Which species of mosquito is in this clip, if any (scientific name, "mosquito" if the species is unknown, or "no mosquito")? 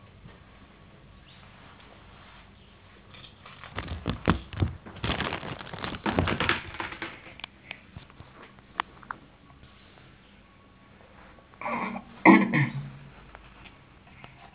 no mosquito